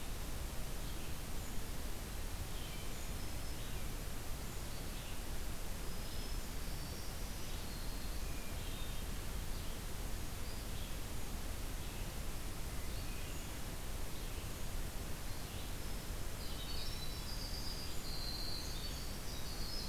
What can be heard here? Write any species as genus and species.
Vireo olivaceus, Setophaga virens, Catharus guttatus, Troglodytes hiemalis